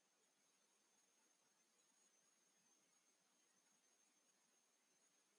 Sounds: Laughter